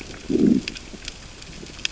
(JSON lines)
{"label": "biophony, growl", "recorder": "SoundTrap 600 or HydroMoth"}